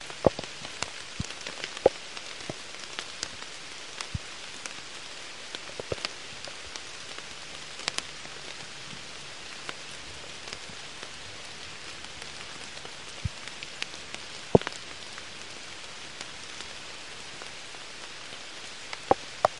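Moderate rain falls. 0:00.0 - 0:19.5

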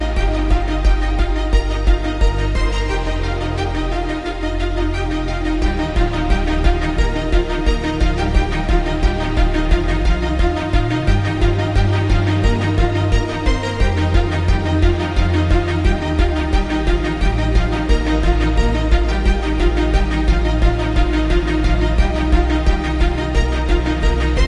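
An epic fanfare performed by a full orchestra with strings playing a staccato, heroic theme that builds with uplifting, cinematic energy and a powerful ostinato, evoking a sense of victory and triumph. 0:00.0 - 0:24.5

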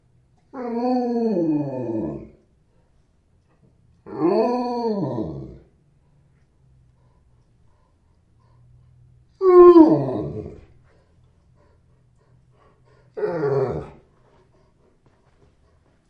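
A dog howls deeply. 0:00.5 - 0:02.3
A dog howls deeply. 0:04.1 - 0:05.7
A dog howls deeply. 0:09.4 - 0:10.6
A dog breathes faintly. 0:10.8 - 0:16.1
A dog howls deeply. 0:13.2 - 0:14.0

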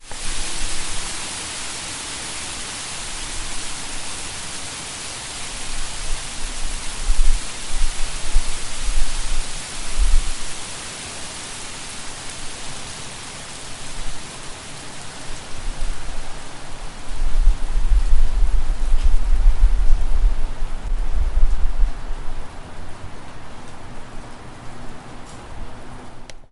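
Loud rain pouring that slowly fades away. 0:00.0 - 0:26.5

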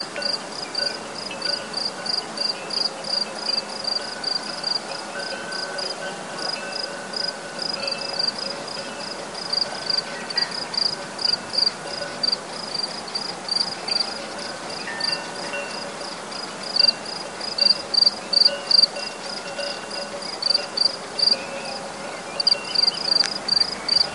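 Crickets chirp continuously with a high-pitched rhythmic tone outdoors. 0:00.0 - 0:24.1

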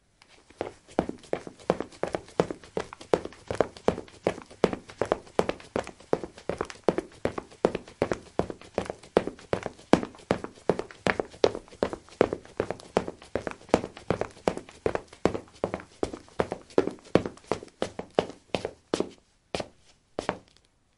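Heavy, fast footsteps of a person running indoors in a rhythmic and consistent pattern. 0:00.4 - 0:18.2
Footsteps gradually slow down in pace and intensity, suggesting the person is coming to a stop indoors. 0:18.3 - 0:20.8

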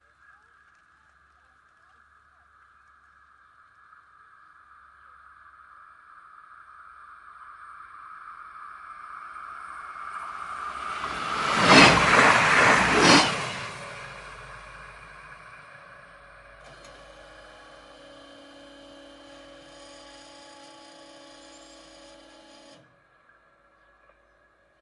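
A very fast train speeds by and then recedes into the distance. 0:09.5 - 0:15.4
A Doppler stereo effect occurs and then stops abruptly. 0:16.5 - 0:23.1

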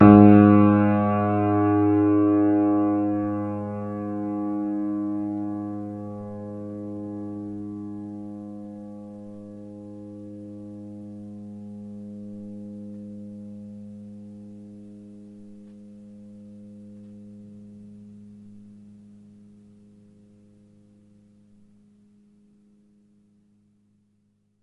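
A single key on an upright piano is pressed, producing a decaying tone. 0:00.0 - 0:24.6

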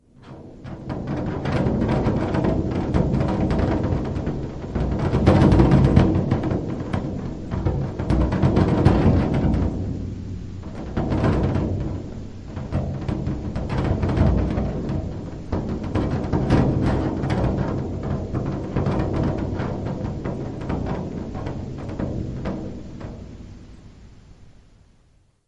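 A drum is playing. 0:00.2 - 0:25.5
Percussion sounds. 0:00.2 - 0:25.5

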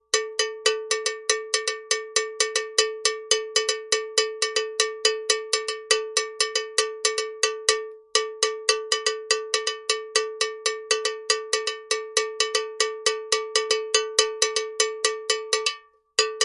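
A bell clanks constantly and rhythmically. 0:00.0 - 0:16.4

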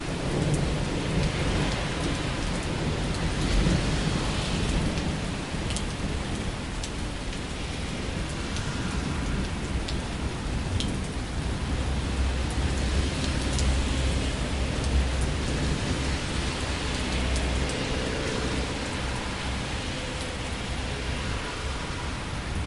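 Heavy rain. 0:00.0 - 0:22.7
The engine of a car drives away quickly, gradually fading. 0:18.1 - 0:22.6

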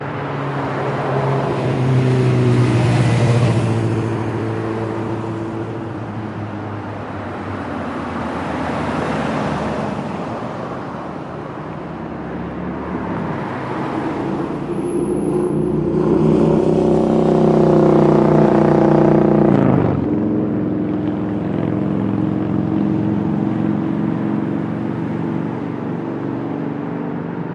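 A car passes by. 0:00.0 - 0:04.8
Multiple cars pass by in the background. 0:04.8 - 0:07.9
A car passes by. 0:07.9 - 0:10.7
Multiple cars pass by in the background. 0:10.7 - 0:14.6
A motorbike passes by. 0:14.7 - 0:20.0
A motorbike fades away on the road. 0:20.1 - 0:27.5

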